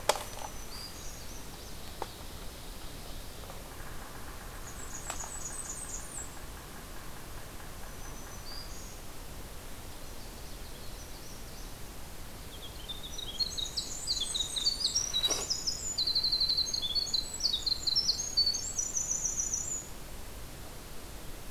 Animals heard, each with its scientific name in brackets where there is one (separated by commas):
Winter Wren (Troglodytes hiemalis), Canada Warbler (Cardellina canadensis), Black-throated Green Warbler (Setophaga virens), Yellow-bellied Sapsucker (Sphyrapicus varius), Magnolia Warbler (Setophaga magnolia), Blackburnian Warbler (Setophaga fusca), Ovenbird (Seiurus aurocapilla)